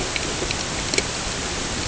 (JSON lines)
{"label": "ambient", "recorder": "HydroMoth"}